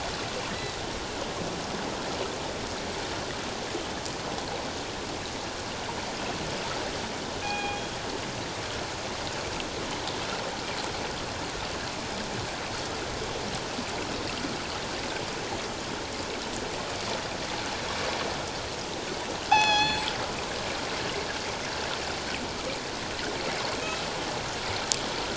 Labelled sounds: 7.4	7.8	killer whale, northern resident, G clan, 0.78 to 3.3 kHz
19.5	20.0	killer whale, northern resident, G clan, 0.78 to 6.2 kHz

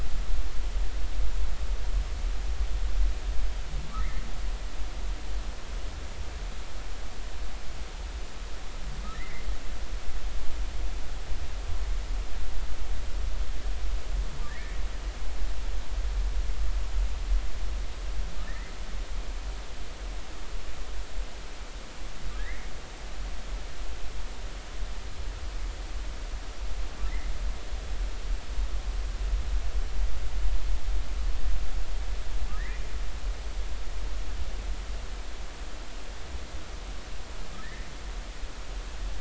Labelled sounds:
9.1	9.5	humpback whale, 1.7 to 2.2 kHz
14.5	14.7	humpback whale, 1.6 to 2.0 kHz
18.5	18.7	humpback whale, 1.7 to 2.1 kHz
22.4	22.7	humpback whale, 1.5 to 2.3 kHz
32.6	32.8	humpback whale, 1.6 to 2.1 kHz
37.6	37.9	humpback whale, 1.7 to 2.1 kHz

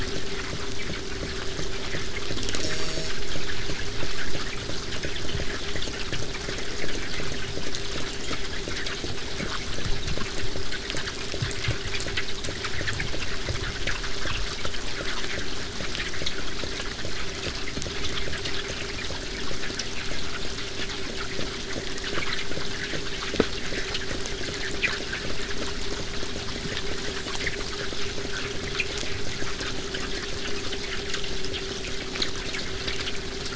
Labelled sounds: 2.6	3.1	killer whale, southern resident, J pod, call S04, 0.15 to 8.0 kHz

